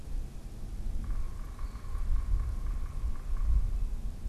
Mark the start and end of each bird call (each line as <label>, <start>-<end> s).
Yellow-bellied Sapsucker (Sphyrapicus varius), 0.9-4.3 s
unidentified bird, 1.6-1.9 s